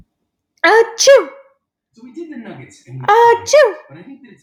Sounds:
Sneeze